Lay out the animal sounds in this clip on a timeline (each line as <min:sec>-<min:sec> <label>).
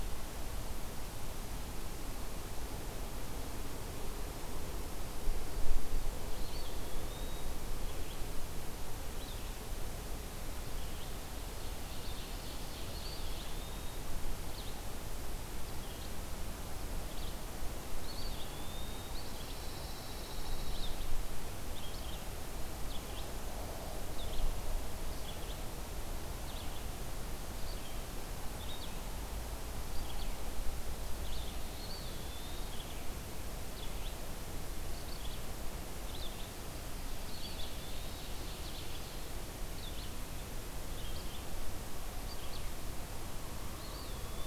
0:00.0-0:33.3 Red-eyed Vireo (Vireo olivaceus)
0:06.0-0:07.7 Eastern Wood-Pewee (Contopus virens)
0:11.7-0:13.7 Ovenbird (Seiurus aurocapilla)
0:12.8-0:14.2 Eastern Wood-Pewee (Contopus virens)
0:17.9-0:19.4 Eastern Wood-Pewee (Contopus virens)
0:19.1-0:21.1 Pine Warbler (Setophaga pinus)
0:31.6-0:32.9 Eastern Wood-Pewee (Contopus virens)
0:33.6-0:42.8 Red-eyed Vireo (Vireo olivaceus)
0:37.0-0:39.2 Ovenbird (Seiurus aurocapilla)
0:37.2-0:38.4 Eastern Wood-Pewee (Contopus virens)
0:43.7-0:44.5 Eastern Wood-Pewee (Contopus virens)